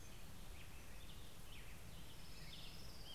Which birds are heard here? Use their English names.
Hermit Warbler, American Robin, Orange-crowned Warbler